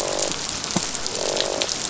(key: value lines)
label: biophony, croak
recorder: SoundTrap 500